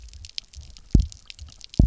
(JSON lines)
{"label": "biophony, double pulse", "recorder": "SoundTrap 300"}